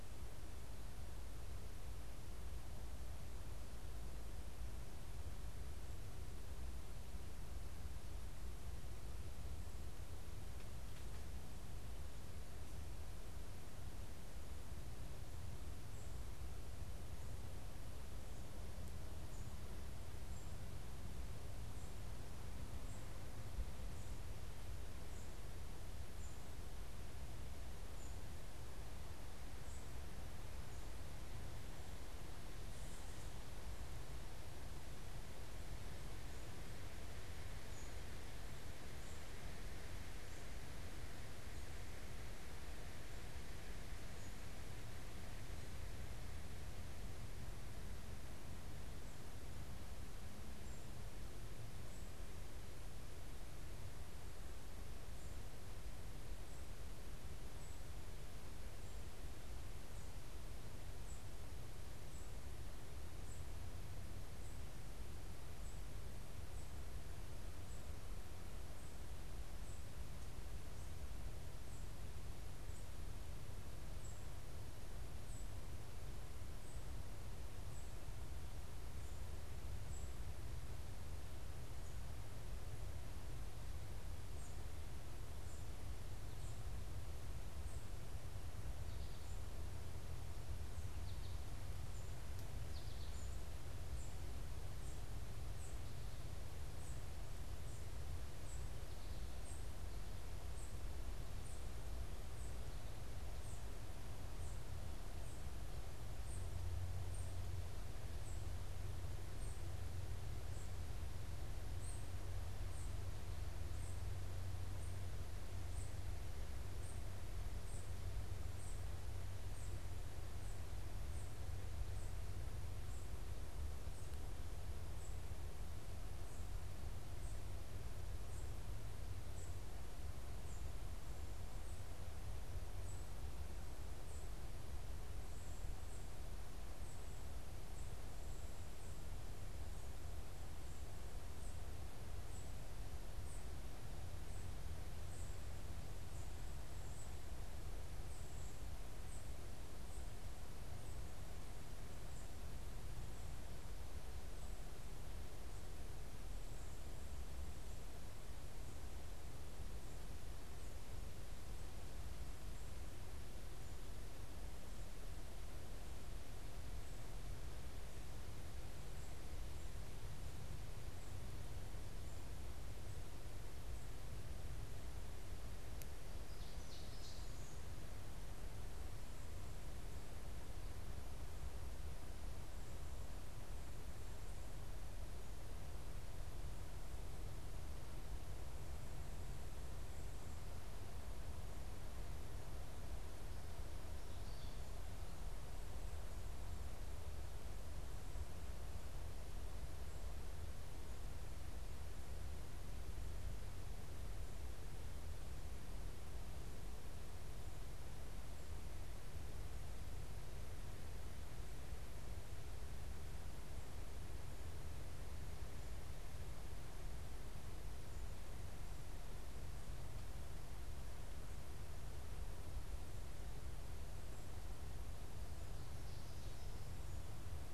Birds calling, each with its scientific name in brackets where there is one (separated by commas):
American Goldfinch (Spinus tristis), unidentified bird, Ovenbird (Seiurus aurocapilla)